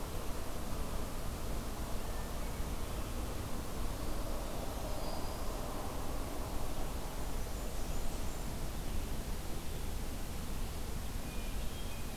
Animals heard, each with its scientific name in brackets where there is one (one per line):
Blackburnian Warbler (Setophaga fusca)
Black-throated Green Warbler (Setophaga virens)
Hermit Thrush (Catharus guttatus)